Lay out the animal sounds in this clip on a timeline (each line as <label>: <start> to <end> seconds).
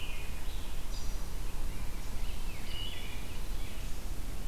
American Robin (Turdus migratorius): 0.0 to 0.8 seconds
Yellow-bellied Sapsucker (Sphyrapicus varius): 0.0 to 1.9 seconds
Rose-breasted Grosbeak (Pheucticus ludovicianus): 1.2 to 4.0 seconds
Wood Thrush (Hylocichla mustelina): 2.6 to 3.3 seconds